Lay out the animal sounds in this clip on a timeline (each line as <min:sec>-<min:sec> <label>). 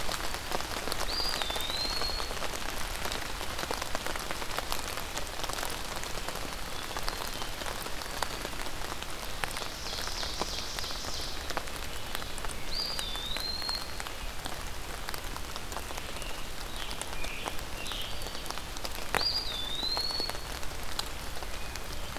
0:00.9-0:02.5 Eastern Wood-Pewee (Contopus virens)
0:06.5-0:07.7 Hermit Thrush (Catharus guttatus)
0:07.9-0:08.6 Black-throated Green Warbler (Setophaga virens)
0:09.5-0:11.5 Ovenbird (Seiurus aurocapilla)
0:12.5-0:14.1 Eastern Wood-Pewee (Contopus virens)
0:15.9-0:18.5 Scarlet Tanager (Piranga olivacea)
0:19.1-0:20.6 Eastern Wood-Pewee (Contopus virens)